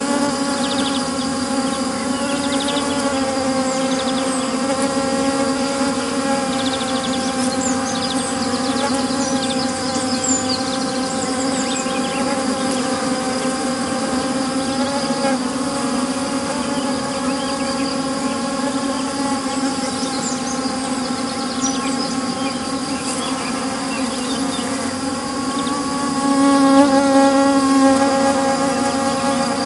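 0.0s Birds chirp and insects hum in a forest. 29.7s

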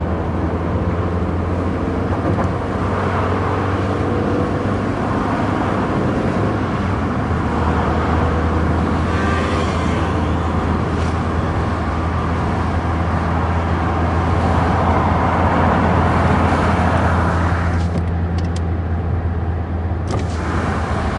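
0.0s Cars driving along a busy road with layers of traffic noise and engine hums, followed by the sound of a car window opening that lets in more outside ambiance. 21.2s

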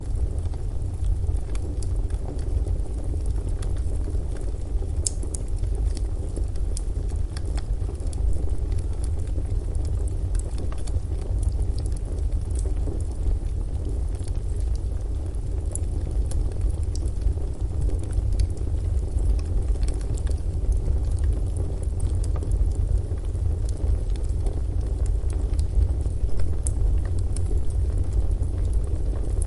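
0.0s A fire burns steadily and quietly. 29.5s

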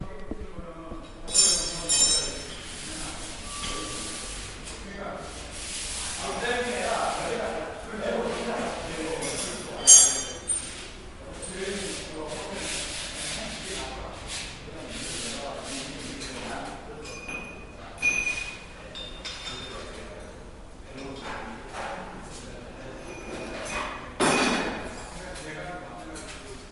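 0.2s Male voices chattering faintly in the distance with echoes through a hall. 16.9s
1.2s Metal hits the floor with a sharp clattering sound. 3.1s
3.7s A swift, raspy swish of an object being dragged or swiped across a smooth surface. 9.5s
9.9s A sharp metallic clatter. 10.5s
11.6s A swift, raspy swish of an object being dragged or swiped across a smooth surface. 17.3s
18.0s A sharp metallic sound. 20.3s
20.5s Construction noises echoing off hard surfaces. 23.5s
23.7s Metal clashing. 25.8s

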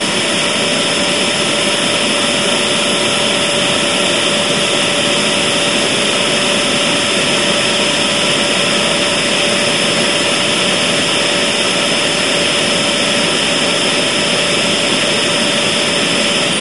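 0.0s A vacuum cleaner is running loudly. 16.6s

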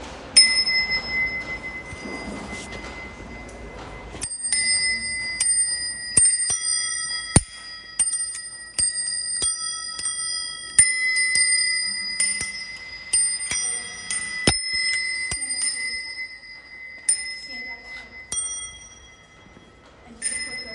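0.0s A repetitive, high-pitched metallic ringing produces a continuous tone that gradually lowers in pitch after each ring and is interrupted by the next ringing sound. 20.7s

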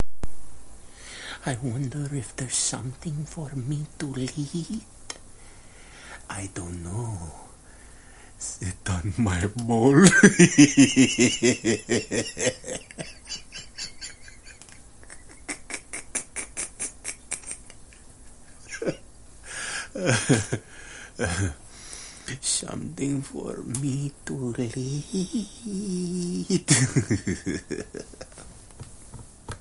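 1.3s A man tells a joke in a low tone, pauses, then tries again seriously but begins to laugh, with his laughter turning into chuckles and a stifled laugh as he attempts to continue. 5.0s
6.3s A man tells a joke in a low tone, pauses, then tries again seriously but begins to laugh, with his laughter turning into chuckles and a stifled laugh as he attempts to continue. 7.5s
8.4s A man tells a joke in a low tone, pauses, then tries again seriously but begins to laugh, with his laughter turning into chuckles and a stifled laugh as he attempts to continue. 28.2s

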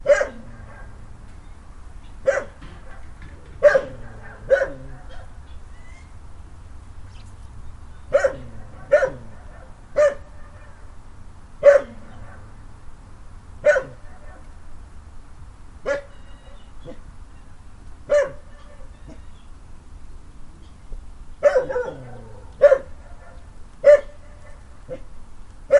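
0.0s A dog barks outdoors with a quiet echo. 1.1s
0.0s A quiet humming noise. 25.8s
2.2s A dog barks outdoors with a quiet echo. 5.5s
2.6s A quiet sound thudding rhythmically. 4.4s
5.7s A high-pitched whining sound is heard quietly. 6.1s
7.1s A bird chirps quietly. 7.3s
8.1s A dog barks outdoors with a quiet echo. 11.0s
11.6s A dog barks outdoors with a quiet echo. 12.6s
13.6s A dog barks outdoors with a quiet echo. 14.6s
15.8s A dog barks. 16.1s
16.1s A bird chirps quietly. 17.4s
16.8s A dog barks. 17.0s
18.0s A dog barks. 19.2s
18.8s A bird chirps quietly. 19.7s
21.4s A dog barks. 25.0s
25.7s A dog barks outdoors with a quiet echo. 25.8s

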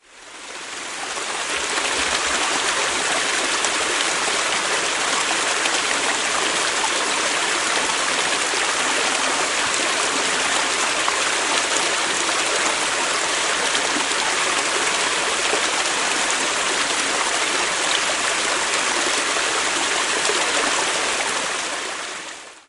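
0.0s A water stream flows softly and continuously. 22.7s

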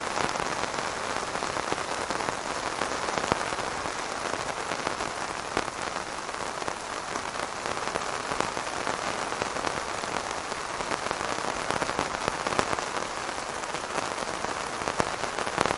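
0.0s Rain falling steadily. 15.8s

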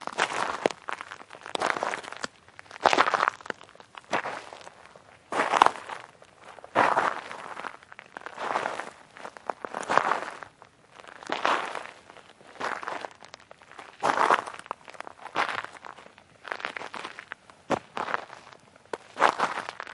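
0.0s Someone walks slowly on gravel with steady steps. 19.9s

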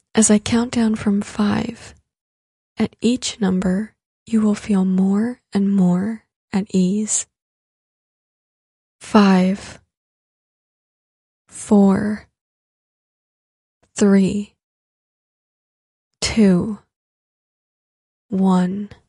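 0.1s A woman is speaking. 2.0s
2.8s A woman is speaking. 7.3s
9.0s A woman is calmly counting. 9.9s
11.5s A woman is calmly counting. 12.2s
14.0s A woman is calmly counting. 14.5s
16.2s A woman is calmly counting. 16.8s
18.3s A woman is calmly counting. 19.0s

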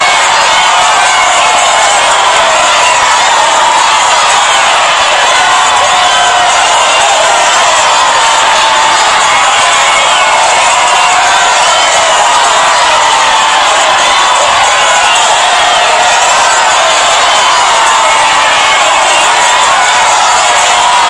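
0.0s A crowd applauds and cheers loudly. 21.1s

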